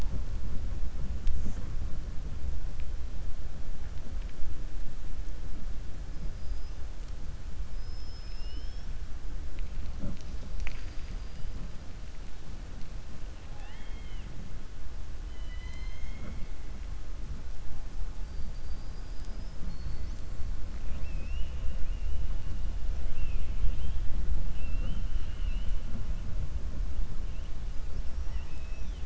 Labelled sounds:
6.3	6.8	killer whale, 4.9 to 5.2 kHz
10.4	11.5	killer whale, 0.77 to 7.0 kHz
13.4	14.3	killer whale, 0.73 to 3.6 kHz
15.2	16.5	killer whale, 0.22 to 7.8 kHz
20.8	21.6	killer whale, 2.0 to 3.6 kHz
23.0	23.5	killer whale, 2.0 to 3.5 kHz
27.9	29.0	killer whale, 1.9 to 6.0 kHz

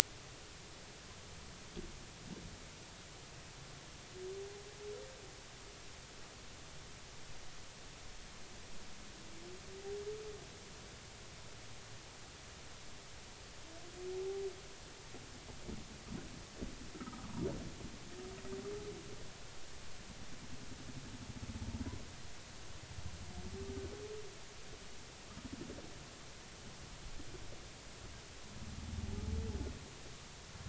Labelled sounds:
14.1	14.5	humpback whale, 0.80 to 0.93 kHz
16.9	17.3	humpback whale, 1.1 to 1.4 kHz

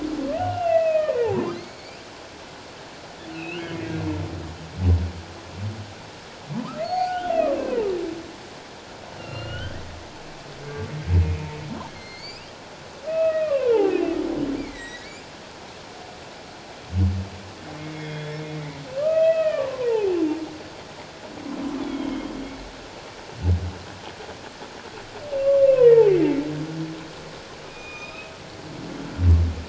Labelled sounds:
0.4	1.2	humpback whale, 1.3 to 3.0 kHz
1.6	2.0	humpback whale, 2.0 to 2.5 kHz
3.3	3.9	humpback whale, 2.1 to 4.4 kHz
6.8	7.7	humpback whale, 0.78 to 4.5 kHz
9.2	9.8	humpback whale, 1.4 to 4.3 kHz
11.9	14.1	humpback whale, 0.78 to 5.1 kHz
14.6	15.1	humpback whale, 1.8 to 4.2 kHz
17.8	20.1	humpback whale, 0.81 to 3.5 kHz
21.8	22.3	humpback whale, 2.1 to 3.5 kHz
25.7	26.4	humpback whale, 0.78 to 2.2 kHz
27.7	28.3	humpback whale, 1.2 to 4.0 kHz

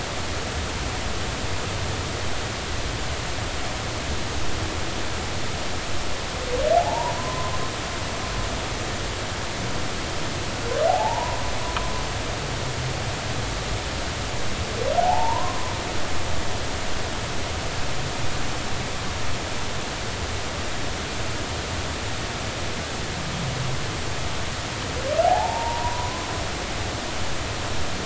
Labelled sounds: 6.7	7.5	humpback whale, 0.80 to 1.1 kHz
10.9	11.4	humpback whale, 0.80 to 1.0 kHz
15.0	15.7	humpback whale, 0.80 to 1.1 kHz
25.2	26.3	humpback whale, 0.80 to 1.1 kHz

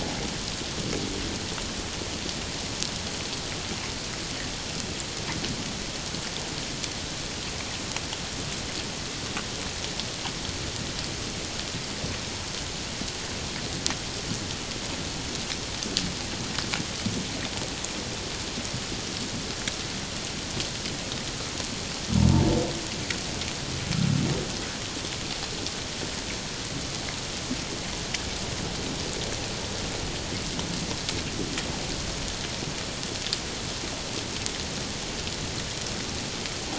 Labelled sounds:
22.1	22.4	humpback whale, 0.84 to 1.0 kHz

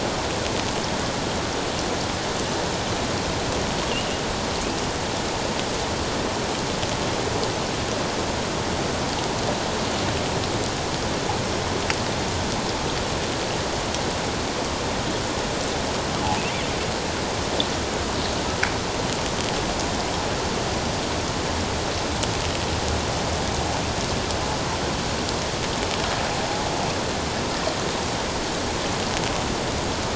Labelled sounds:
3.9	4.2	killer whale, offshore, 2.6 to 2.9 kHz

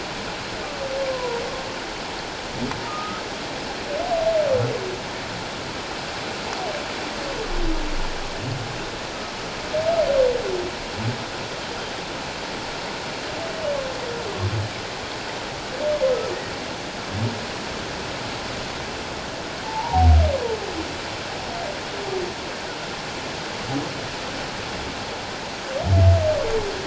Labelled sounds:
1.1	1.4	humpback whale, 0.91 to 1.1 kHz
2.9	3.2	humpback whale, 1.2 to 1.4 kHz
19.6	20.1	humpback whale, 0.78 to 1.0 kHz

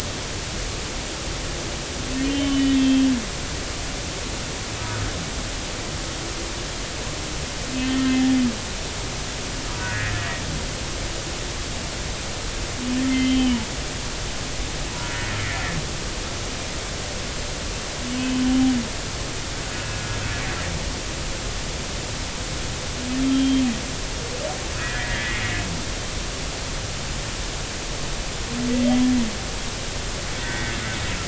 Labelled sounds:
2.2	3.1	humpback whale, 2.6 to 3.6 kHz
7.8	8.3	humpback whale, 1.7 to 3.2 kHz
9.7	10.4	humpback whale, 0.93 to 2.0 kHz
13.1	13.6	humpback whale, 2.0 to 3.2 kHz
23.2	23.6	humpback whale, 3.1 to 3.3 kHz
24.8	25.4	humpback whale, 1.4 to 2.2 kHz
28.8	29.1	humpback whale, 3.1 to 3.3 kHz
30.4	30.7	humpback whale, 1.7 to 2.0 kHz

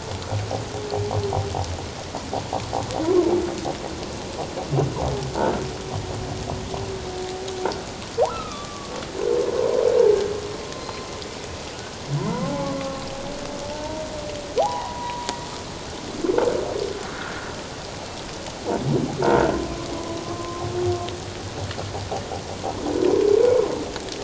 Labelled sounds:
8.3	9.0	humpback whale, 1.1 to 1.4 kHz
10.7	11.0	humpback whale, 4.1 to 4.2 kHz
12.2	13.0	humpback whale, 0.78 to 2.1 kHz
13.7	14.0	humpback whale, 0.84 to 1.0 kHz
14.6	15.3	humpback whale, 0.78 to 1.1 kHz
17.1	17.4	humpback whale, 1.3 to 1.8 kHz
20.3	20.6	humpback whale, 1.0 to 1.1 kHz

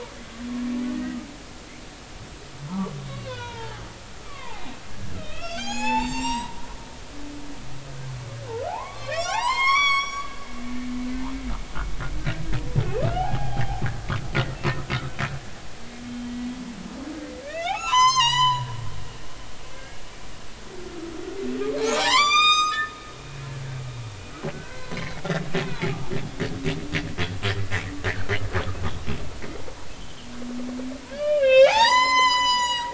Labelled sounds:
1.0	1.3	humpback whale, 1.2 to 1.3 kHz
2.7	3.8	humpback whale, 0.80 to 5.9 kHz
4.2	6.5	humpback whale, 0.80 to 7.8 kHz
8.7	10.6	humpback whale, 0.80 to 8.0 kHz
13.1	13.8	humpback whale, 0.80 to 3.3 kHz
14.3	14.6	humpback whale, 1.7 to 2.1 kHz
16.1	16.4	humpback whale, 3.1 to 3.2 kHz
17.4	18.7	humpback whale, 0.80 to 8.0 kHz
19.7	20.0	humpback whale, 1.5 to 2.2 kHz
21.9	23.6	humpback whale, 0.80 to 7.8 kHz
24.5	25.2	humpback whale, 1.4 to 4.2 kHz
25.7	26.0	humpback whale, 0.80 to 0.99 kHz
30.0	30.3	humpback whale, 2.8 to 3.2 kHz
31.1	32.9	humpback whale, 0.80 to 8.0 kHz

